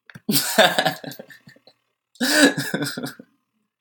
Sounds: Laughter